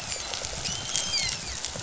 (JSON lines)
{"label": "biophony, dolphin", "recorder": "SoundTrap 500"}
{"label": "biophony", "recorder": "SoundTrap 500"}